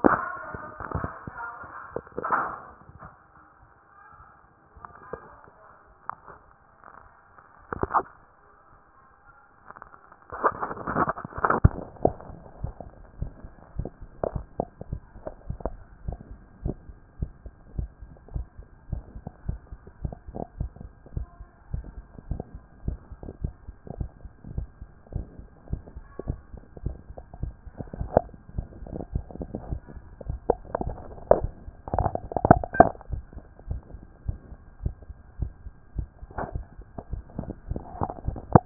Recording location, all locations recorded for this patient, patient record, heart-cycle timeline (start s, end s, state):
mitral valve (MV)
aortic valve (AV)+pulmonary valve (PV)+tricuspid valve (TV)+mitral valve (MV)
#Age: nan
#Sex: Female
#Height: nan
#Weight: nan
#Pregnancy status: True
#Murmur: Absent
#Murmur locations: nan
#Most audible location: nan
#Systolic murmur timing: nan
#Systolic murmur shape: nan
#Systolic murmur grading: nan
#Systolic murmur pitch: nan
#Systolic murmur quality: nan
#Diastolic murmur timing: nan
#Diastolic murmur shape: nan
#Diastolic murmur grading: nan
#Diastolic murmur pitch: nan
#Diastolic murmur quality: nan
#Outcome: Normal
#Campaign: 2014 screening campaign
0.00	16.06	unannotated
16.06	16.18	S1
16.18	16.30	systole
16.30	16.38	S2
16.38	16.64	diastole
16.64	16.76	S1
16.76	16.88	systole
16.88	16.98	S2
16.98	17.20	diastole
17.20	17.32	S1
17.32	17.44	systole
17.44	17.52	S2
17.52	17.76	diastole
17.76	17.90	S1
17.90	18.02	systole
18.02	18.10	S2
18.10	18.34	diastole
18.34	18.46	S1
18.46	18.58	systole
18.58	18.66	S2
18.66	18.90	diastole
18.90	19.04	S1
19.04	19.14	systole
19.14	19.24	S2
19.24	19.46	diastole
19.46	19.60	S1
19.60	19.72	systole
19.72	19.80	S2
19.80	20.02	diastole
20.02	20.14	S1
20.14	20.30	systole
20.30	20.40	S2
20.40	20.58	diastole
20.58	20.70	S1
20.70	20.82	systole
20.82	20.90	S2
20.90	21.14	diastole
21.14	21.28	S1
21.28	21.40	systole
21.40	21.48	S2
21.48	21.72	diastole
21.72	21.86	S1
21.86	21.96	systole
21.96	22.04	S2
22.04	22.28	diastole
22.28	22.42	S1
22.42	22.54	systole
22.54	22.62	S2
22.62	22.86	diastole
22.86	22.98	S1
22.98	23.10	systole
23.10	23.18	S2
23.18	23.42	diastole
23.42	23.54	S1
23.54	23.66	systole
23.66	23.76	S2
23.76	23.98	diastole
23.98	24.10	S1
24.10	24.22	systole
24.22	24.32	S2
24.32	24.54	diastole
24.54	24.68	S1
24.68	24.80	systole
24.80	24.88	S2
24.88	25.14	diastole
25.14	25.26	S1
25.26	25.38	systole
25.38	25.48	S2
25.48	25.70	diastole
25.70	25.82	S1
25.82	25.96	systole
25.96	26.04	S2
26.04	26.26	diastole
26.26	26.38	S1
26.38	26.52	systole
26.52	26.62	S2
26.62	26.84	diastole
26.84	26.98	S1
26.98	27.10	systole
27.10	27.20	S2
27.20	27.42	diastole
27.42	38.66	unannotated